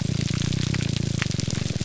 {"label": "biophony", "recorder": "SoundTrap 300"}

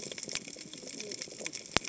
{"label": "biophony, cascading saw", "recorder": "HydroMoth"}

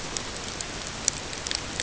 {"label": "ambient", "recorder": "HydroMoth"}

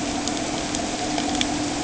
{"label": "anthrophony, boat engine", "recorder": "HydroMoth"}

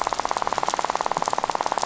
{"label": "biophony, rattle", "recorder": "SoundTrap 500"}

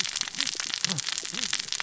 {"label": "biophony, cascading saw", "recorder": "SoundTrap 600 or HydroMoth"}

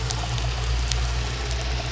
{"label": "biophony", "recorder": "SoundTrap 300"}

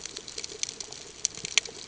{"label": "ambient", "recorder": "HydroMoth"}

